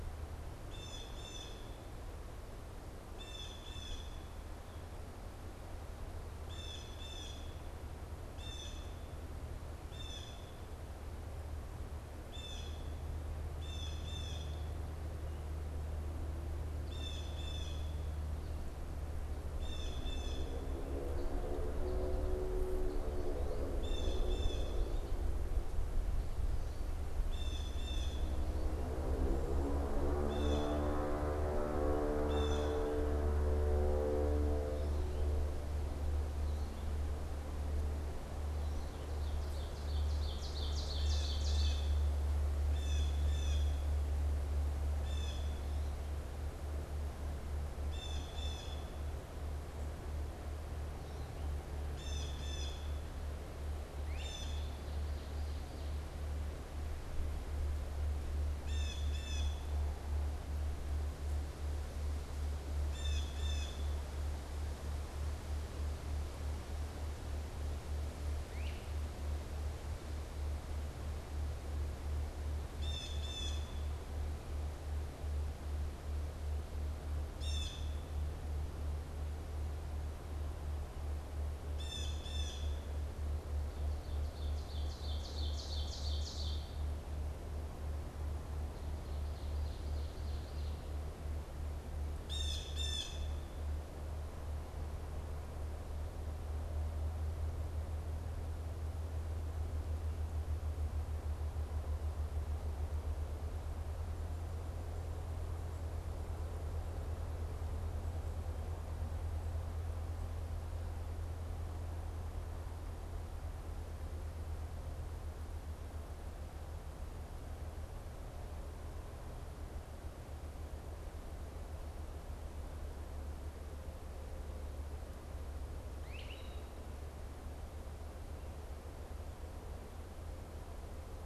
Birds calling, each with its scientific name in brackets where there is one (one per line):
Ovenbird (Seiurus aurocapilla)
Great Crested Flycatcher (Myiarchus crinitus)
Blue Jay (Cyanocitta cristata)